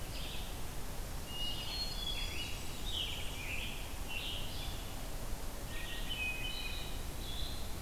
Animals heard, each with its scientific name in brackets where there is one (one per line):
Scarlet Tanager (Piranga olivacea)
Blackburnian Warbler (Setophaga fusca)
Red-eyed Vireo (Vireo olivaceus)
Hermit Thrush (Catharus guttatus)